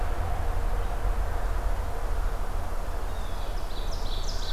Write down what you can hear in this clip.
Blue Jay, Ovenbird